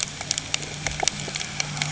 {"label": "anthrophony, boat engine", "recorder": "HydroMoth"}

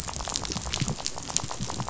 {"label": "biophony, rattle", "recorder": "SoundTrap 500"}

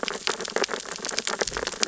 {"label": "biophony, sea urchins (Echinidae)", "recorder": "SoundTrap 600 or HydroMoth"}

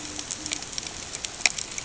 {"label": "ambient", "recorder": "HydroMoth"}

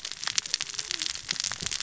{"label": "biophony, cascading saw", "recorder": "SoundTrap 600 or HydroMoth"}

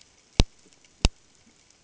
{"label": "ambient", "recorder": "HydroMoth"}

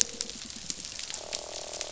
{"label": "biophony, croak", "recorder": "SoundTrap 500"}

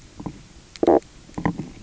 {"label": "biophony, knock croak", "recorder": "SoundTrap 300"}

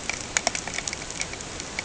{"label": "ambient", "recorder": "HydroMoth"}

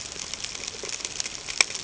{"label": "ambient", "recorder": "HydroMoth"}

